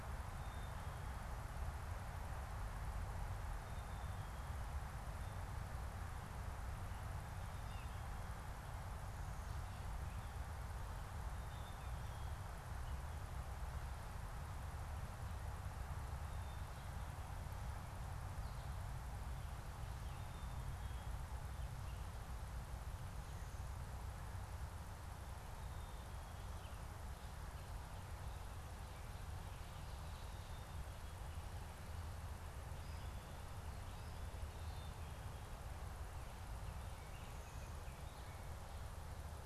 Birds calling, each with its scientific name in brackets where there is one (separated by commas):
Black-capped Chickadee (Poecile atricapillus), Baltimore Oriole (Icterus galbula)